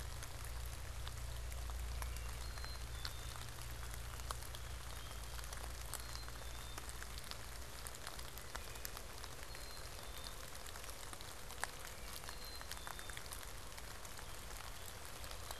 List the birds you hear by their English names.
Black-capped Chickadee